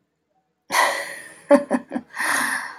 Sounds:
Laughter